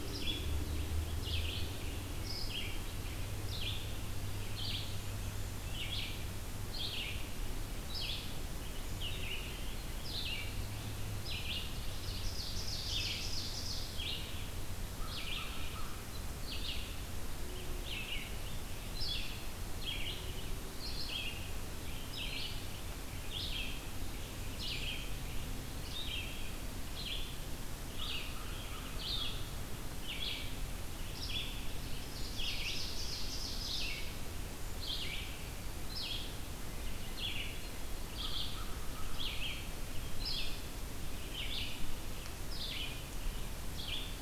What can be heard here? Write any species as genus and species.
Vireo olivaceus, Seiurus aurocapilla, Corvus brachyrhynchos